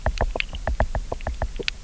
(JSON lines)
{"label": "biophony, knock", "recorder": "SoundTrap 300"}